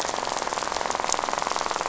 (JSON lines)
{"label": "biophony, rattle", "recorder": "SoundTrap 500"}